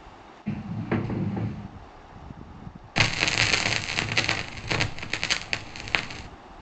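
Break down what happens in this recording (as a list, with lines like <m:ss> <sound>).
0:00 wooden furniture moves
0:03 crackling is audible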